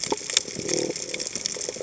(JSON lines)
{"label": "biophony", "recorder": "HydroMoth"}